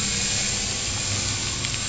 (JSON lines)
{"label": "anthrophony, boat engine", "recorder": "SoundTrap 500"}